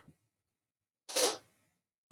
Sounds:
Sniff